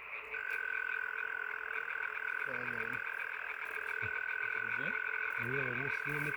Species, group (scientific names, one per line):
Gryllotalpa gryllotalpa
Orthoptera